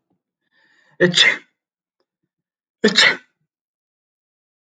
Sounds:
Sneeze